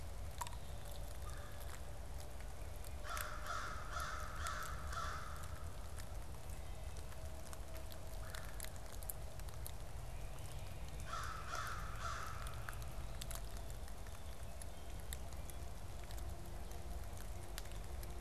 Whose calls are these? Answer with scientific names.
Melanerpes carolinus, Corvus brachyrhynchos